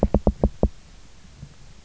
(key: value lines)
label: biophony, knock
recorder: SoundTrap 300